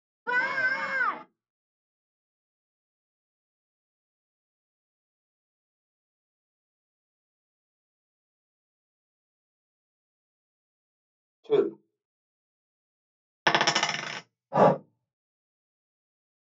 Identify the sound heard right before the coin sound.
speech